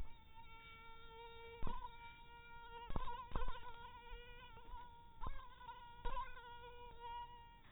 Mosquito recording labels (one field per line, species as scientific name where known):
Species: mosquito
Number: one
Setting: cup